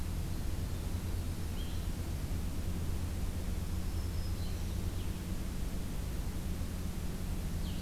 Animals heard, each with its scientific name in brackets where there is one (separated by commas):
Blue-headed Vireo (Vireo solitarius), Black-throated Green Warbler (Setophaga virens)